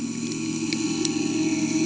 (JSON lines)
{"label": "anthrophony, boat engine", "recorder": "HydroMoth"}